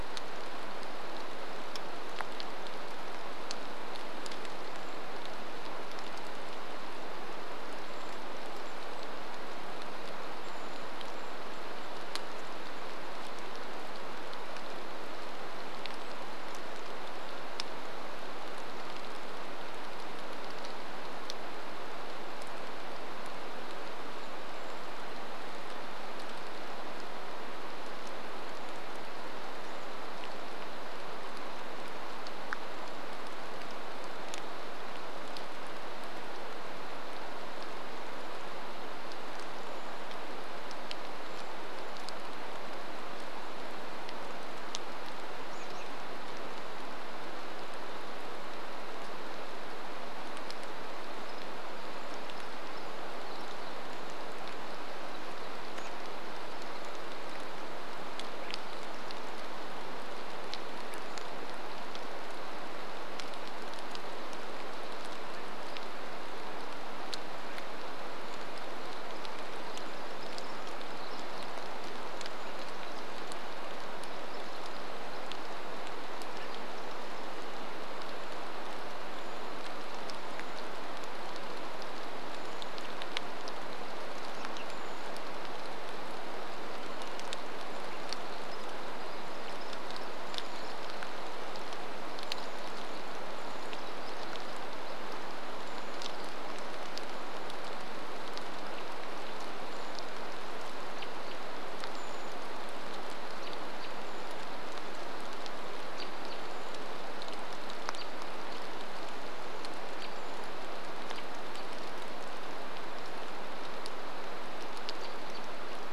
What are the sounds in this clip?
rain, Brown Creeper call, American Robin call, Pacific Wren song, Swainson's Thrush call